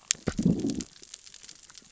{"label": "biophony, growl", "recorder": "SoundTrap 600 or HydroMoth"}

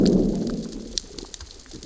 {"label": "biophony, growl", "recorder": "SoundTrap 600 or HydroMoth"}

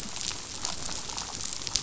{"label": "biophony, damselfish", "recorder": "SoundTrap 500"}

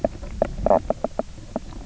{"label": "biophony, knock croak", "recorder": "SoundTrap 300"}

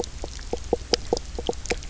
{"label": "biophony, knock croak", "recorder": "SoundTrap 300"}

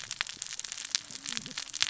{"label": "biophony, cascading saw", "recorder": "SoundTrap 600 or HydroMoth"}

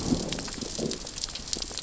{"label": "biophony, growl", "recorder": "SoundTrap 600 or HydroMoth"}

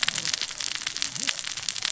{"label": "biophony, cascading saw", "recorder": "SoundTrap 600 or HydroMoth"}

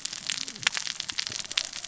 {"label": "biophony, cascading saw", "recorder": "SoundTrap 600 or HydroMoth"}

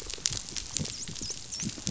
{"label": "biophony, dolphin", "recorder": "SoundTrap 500"}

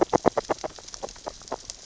{"label": "biophony, grazing", "recorder": "SoundTrap 600 or HydroMoth"}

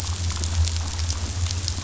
{"label": "anthrophony, boat engine", "recorder": "SoundTrap 500"}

